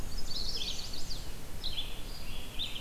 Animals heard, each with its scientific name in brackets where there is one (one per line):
Black-and-white Warbler (Mniotilta varia)
Red-eyed Vireo (Vireo olivaceus)
Chestnut-sided Warbler (Setophaga pensylvanica)